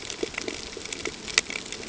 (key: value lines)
label: ambient
recorder: HydroMoth